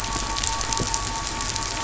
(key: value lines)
label: anthrophony, boat engine
recorder: SoundTrap 500